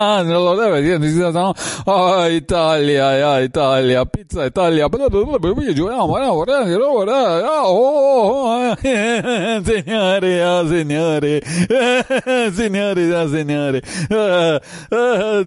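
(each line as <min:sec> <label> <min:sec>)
0:00.0 A person is speaking humorously into a microphone. 0:15.5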